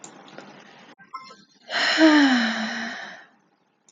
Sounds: Sigh